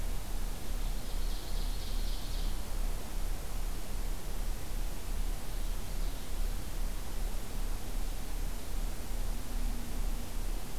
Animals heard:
Ovenbird (Seiurus aurocapilla), Purple Finch (Haemorhous purpureus)

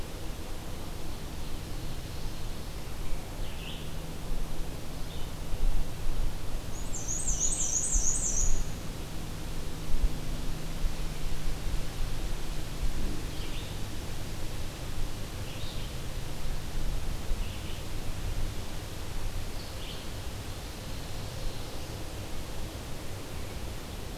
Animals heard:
Black-and-white Warbler (Mniotilta varia), Ovenbird (Seiurus aurocapilla), Red-eyed Vireo (Vireo olivaceus)

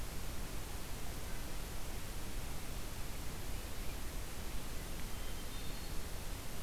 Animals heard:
Hermit Thrush (Catharus guttatus)

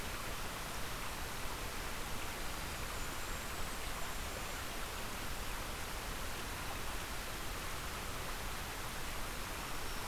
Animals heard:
Golden-crowned Kinglet (Regulus satrapa), Black-throated Green Warbler (Setophaga virens)

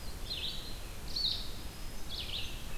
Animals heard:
American Crow (Corvus brachyrhynchos), Blue-headed Vireo (Vireo solitarius), Song Sparrow (Melospiza melodia)

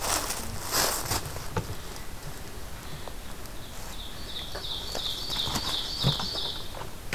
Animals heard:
Ovenbird (Seiurus aurocapilla)

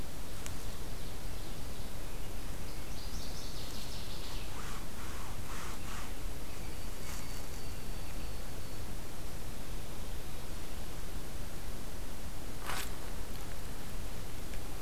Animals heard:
Northern Waterthrush (Parkesia noveboracensis), White-throated Sparrow (Zonotrichia albicollis), Ovenbird (Seiurus aurocapilla)

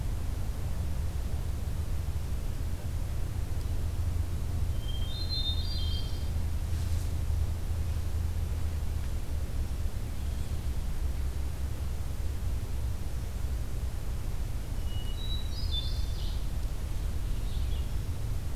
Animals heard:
Red-eyed Vireo (Vireo olivaceus), Hermit Thrush (Catharus guttatus)

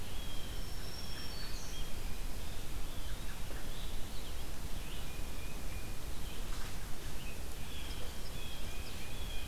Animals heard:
Blue Jay (Cyanocitta cristata), Tufted Titmouse (Baeolophus bicolor), Black-throated Green Warbler (Setophaga virens), Red-eyed Vireo (Vireo olivaceus)

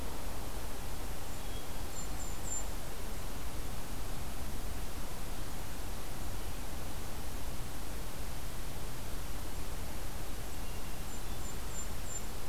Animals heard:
Hermit Thrush (Catharus guttatus), Golden-crowned Kinglet (Regulus satrapa)

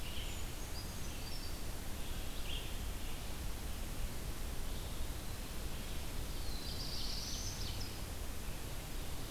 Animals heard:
Red-eyed Vireo (Vireo olivaceus), Ovenbird (Seiurus aurocapilla), Brown Creeper (Certhia americana), Black-throated Blue Warbler (Setophaga caerulescens)

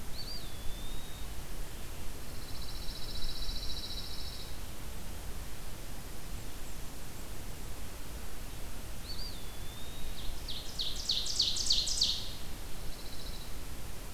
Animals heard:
Pine Warbler (Setophaga pinus), Ovenbird (Seiurus aurocapilla), Eastern Wood-Pewee (Contopus virens)

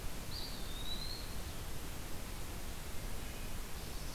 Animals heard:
Wood Thrush (Hylocichla mustelina), Eastern Wood-Pewee (Contopus virens)

